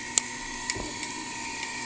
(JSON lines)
{"label": "anthrophony, boat engine", "recorder": "HydroMoth"}